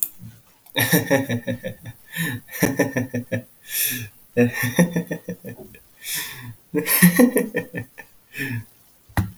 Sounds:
Laughter